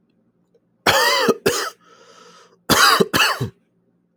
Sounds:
Cough